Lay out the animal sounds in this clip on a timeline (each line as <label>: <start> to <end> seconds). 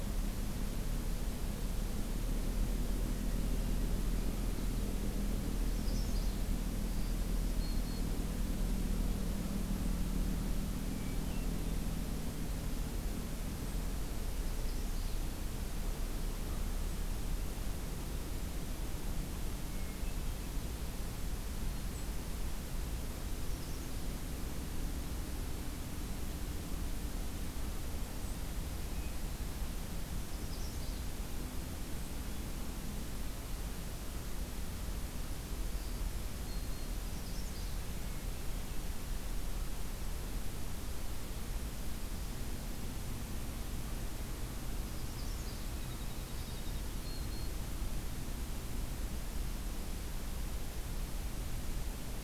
Magnolia Warbler (Setophaga magnolia): 5.7 to 6.4 seconds
Black-throated Green Warbler (Setophaga virens): 6.8 to 8.0 seconds
Hermit Thrush (Catharus guttatus): 10.5 to 11.6 seconds
Magnolia Warbler (Setophaga magnolia): 14.3 to 15.2 seconds
Hermit Thrush (Catharus guttatus): 19.5 to 20.5 seconds
Magnolia Warbler (Setophaga magnolia): 23.4 to 24.0 seconds
Hermit Thrush (Catharus guttatus): 28.8 to 29.6 seconds
Magnolia Warbler (Setophaga magnolia): 30.3 to 31.1 seconds
Black-throated Green Warbler (Setophaga virens): 35.8 to 37.0 seconds
Magnolia Warbler (Setophaga magnolia): 37.0 to 37.8 seconds
Hermit Thrush (Catharus guttatus): 37.9 to 39.0 seconds
Magnolia Warbler (Setophaga magnolia): 45.0 to 45.7 seconds
Winter Wren (Troglodytes hiemalis): 45.7 to 46.9 seconds
Black-throated Green Warbler (Setophaga virens): 46.1 to 47.6 seconds